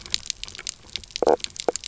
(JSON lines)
{"label": "biophony, knock croak", "recorder": "SoundTrap 300"}